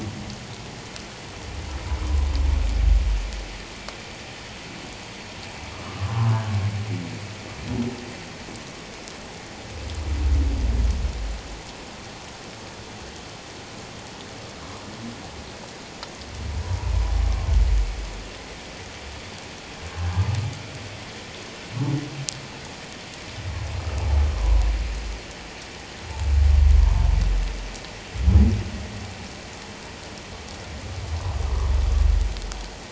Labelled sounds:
5.8	6.1	humpback whale, 1.0 to 1.3 kHz

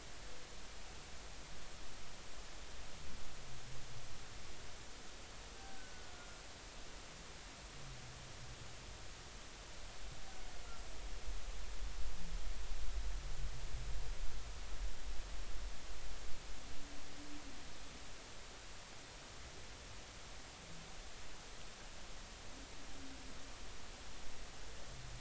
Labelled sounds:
5.6	6.4	humpback whale, 1.4 to 1.6 kHz

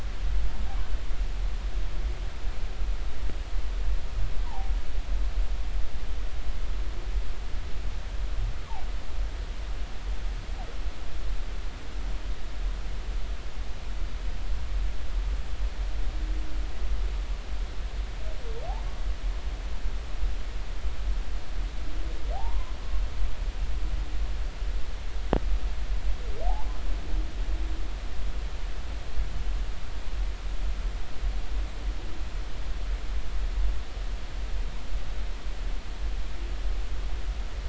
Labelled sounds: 4.4	4.7	humpback whale, 0.80 to 1.1 kHz
22.3	22.8	humpback whale, 0.80 to 1.1 kHz
26.5	26.8	humpback whale, 0.80 to 1.1 kHz

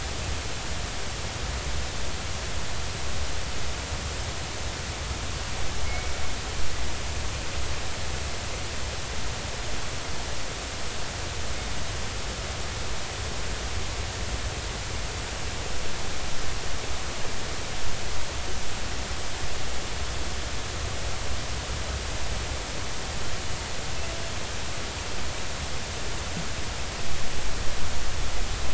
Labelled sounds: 5.8	6.1	killer whale, northern resident, G clan, 2.1 to 2.3 kHz

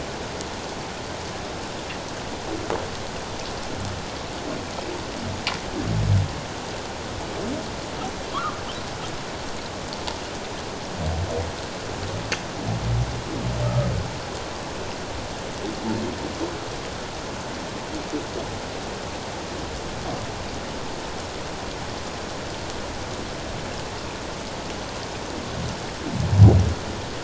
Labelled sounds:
8.3	8.6	humpback whale, 1.0 to 1.5 kHz

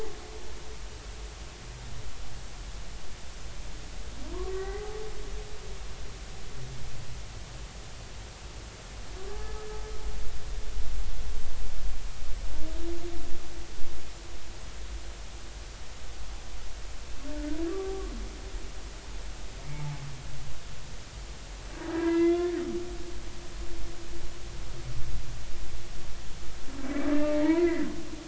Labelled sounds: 4.5	5.0	humpback whale, 0.80 to 2.1 kHz
9.4	9.7	humpback whale, 1.2 to 1.3 kHz
17.7	17.9	humpback whale, 1.1 to 1.2 kHz
21.9	22.5	humpback whale, 0.93 to 3.5 kHz
26.8	27.9	humpback whale, 0.86 to 2.4 kHz

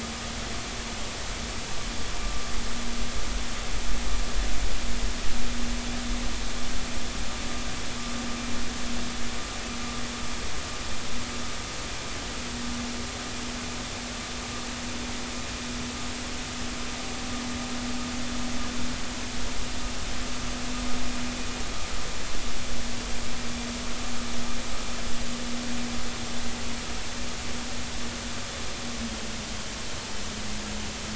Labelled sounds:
2.2	2.5	vessel noise, 1.15 to 1.22 kHz

